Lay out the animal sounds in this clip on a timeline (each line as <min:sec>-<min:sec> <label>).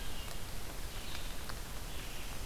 0:00.0-0:02.5 Red-eyed Vireo (Vireo olivaceus)